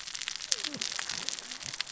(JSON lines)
{"label": "biophony, cascading saw", "recorder": "SoundTrap 600 or HydroMoth"}